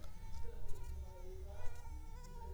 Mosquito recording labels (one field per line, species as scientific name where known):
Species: Culex pipiens complex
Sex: female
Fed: unfed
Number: one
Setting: cup